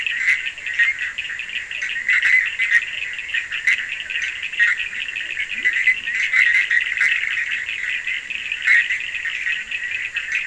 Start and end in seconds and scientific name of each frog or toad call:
0.0	10.4	Boana bischoffi
0.0	10.4	Sphaenorhynchus surdus
0.4	6.9	Physalaemus cuvieri
5.3	6.1	Leptodactylus latrans
8.4	9.2	Leptodactylus latrans